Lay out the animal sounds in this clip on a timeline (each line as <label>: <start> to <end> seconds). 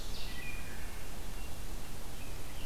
Wood Thrush (Hylocichla mustelina): 0.0 to 1.3 seconds